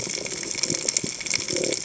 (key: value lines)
label: biophony
recorder: HydroMoth